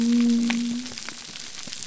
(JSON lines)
{"label": "biophony", "recorder": "SoundTrap 300"}